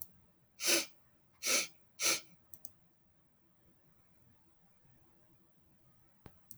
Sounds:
Sniff